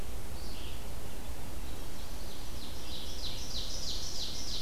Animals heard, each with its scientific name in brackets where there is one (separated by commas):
Red-eyed Vireo (Vireo olivaceus), Ovenbird (Seiurus aurocapilla)